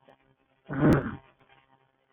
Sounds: Sniff